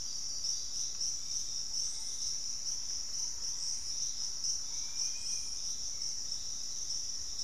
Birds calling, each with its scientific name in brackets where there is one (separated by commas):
Dusky-capped Flycatcher (Myiarchus tuberculifer), Thrush-like Wren (Campylorhynchus turdinus)